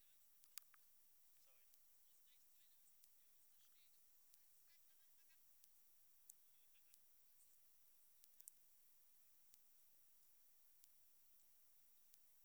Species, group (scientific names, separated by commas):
Metrioptera saussuriana, Orthoptera